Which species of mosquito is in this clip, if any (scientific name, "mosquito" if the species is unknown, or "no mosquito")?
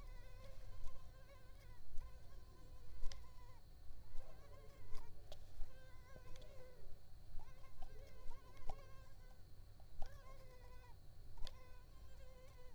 Culex pipiens complex